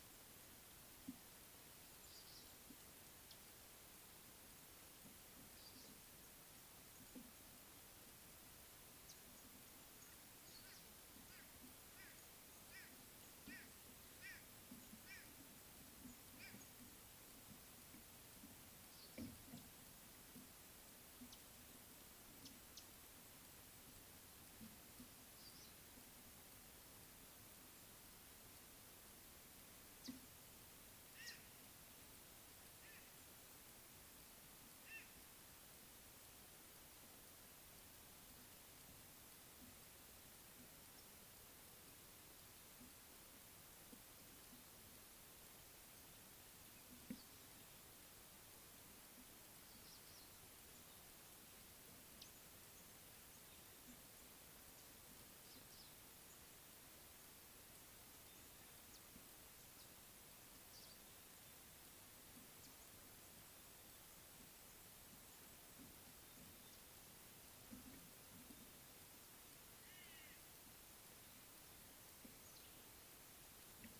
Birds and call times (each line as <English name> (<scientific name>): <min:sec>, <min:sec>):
White-bellied Go-away-bird (Corythaixoides leucogaster): 0:14.3